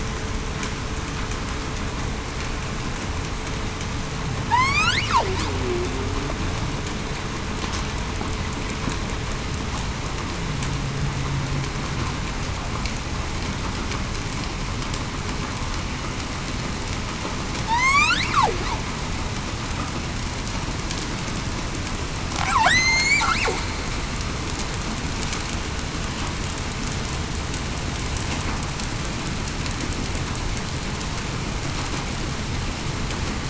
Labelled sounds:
4.5	5.0	killer whale, southern resident, 1.6 to 3.8 kHz
17.7	18.2	killer whale, southern resident, 1.8 to 7.9 kHz
22.6	23.2	killer whale, southern resident, 1.4 to 8.0 kHz

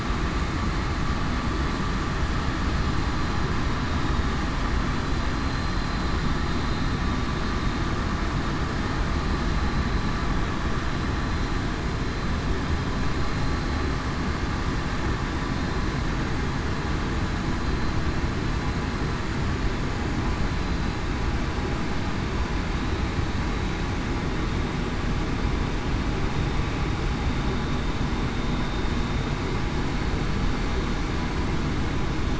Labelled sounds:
5.3	5.9	vessel noise, 4.1 to 4.2 kHz

